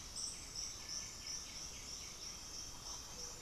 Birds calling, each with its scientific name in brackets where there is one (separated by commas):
Cinereous Tinamou (Crypturellus cinereus), White-winged Becard (Pachyramphus polychopterus)